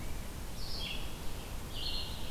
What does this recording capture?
Red-eyed Vireo